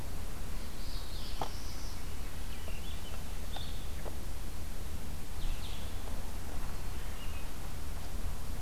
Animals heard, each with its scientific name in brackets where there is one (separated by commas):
Red-eyed Vireo (Vireo olivaceus), Swainson's Thrush (Catharus ustulatus), Northern Parula (Setophaga americana), Blue-headed Vireo (Vireo solitarius)